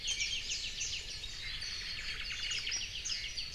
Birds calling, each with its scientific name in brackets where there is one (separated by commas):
Warbling White-eye (Zosterops japonicus), Omao (Myadestes obscurus), Apapane (Himatione sanguinea)